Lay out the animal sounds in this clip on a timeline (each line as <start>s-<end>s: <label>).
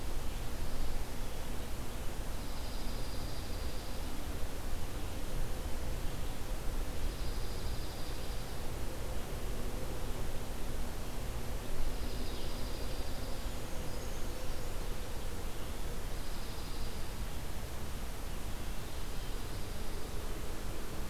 2.2s-4.2s: Dark-eyed Junco (Junco hyemalis)
6.9s-8.6s: Dark-eyed Junco (Junco hyemalis)
11.8s-13.4s: Dark-eyed Junco (Junco hyemalis)
13.3s-14.8s: Brown Creeper (Certhia americana)
16.0s-17.1s: Dark-eyed Junco (Junco hyemalis)
19.0s-20.2s: Dark-eyed Junco (Junco hyemalis)